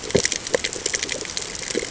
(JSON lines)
{"label": "ambient", "recorder": "HydroMoth"}